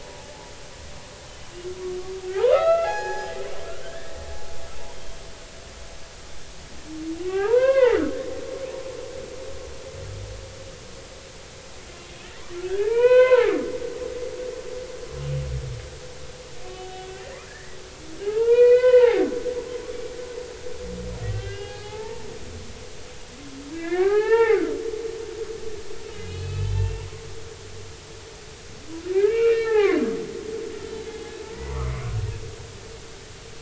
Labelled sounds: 2.3	3.4	humpback whale, 0.80 to 6.8 kHz
3.8	4.2	humpback whale, 1.5 to 1.9 kHz
4.9	5.2	humpback whale, 3.1 to 3.2 kHz
7.3	8.1	humpback whale, 0.80 to 3.3 kHz
12.7	13.6	humpback whale, 0.80 to 3.1 kHz
16.8	17.8	humpback whale, 1.6 to 3.5 kHz
18.2	19.3	humpback whale, 0.80 to 4.6 kHz
21.3	22.3	humpback whale, 0.80 to 5.0 kHz
23.7	24.6	humpback whale, 0.80 to 2.9 kHz
26.1	27.1	humpback whale, 2.4 to 4.3 kHz
29.1	30.1	humpback whale, 0.80 to 2.9 kHz
31.1	31.8	humpback whale, 0.80 to 1.1 kHz

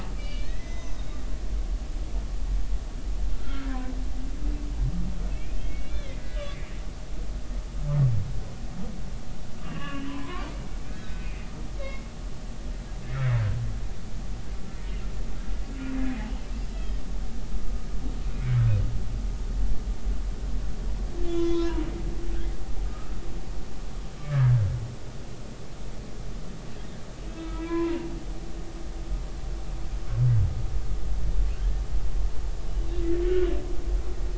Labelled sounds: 0.2	0.9	humpback whale, 1.7 to 6.1 kHz
3.3	3.9	humpback whale, 0.96 to 1.6 kHz
5.3	6.5	humpback whale, 1.6 to 3.6 kHz
9.7	11.4	humpback whale, 0.93 to 3.2 kHz
11.8	12.1	humpback whale, 2.1 to 2.2 kHz
13.0	13.3	humpback whale, 1.7 to 1.9 kHz
16.7	17.0	humpback whale, 3.1 to 3.4 kHz
18.4	18.6	humpback whale, 2.0 to 2.3 kHz
21.2	21.9	humpback whale, 0.90 to 4.2 kHz
22.8	23.2	humpback whale, 1.2 to 1.3 kHz
24.2	24.5	humpback whale, 1.5 to 1.8 kHz
27.2	28.1	humpback whale, 0.90 to 2.9 kHz

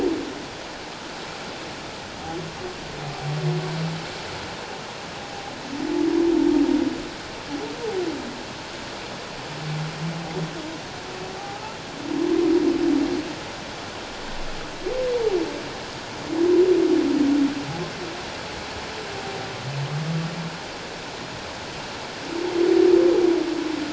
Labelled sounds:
11.4	11.6	humpback whale, 0.78 to 0.88 kHz

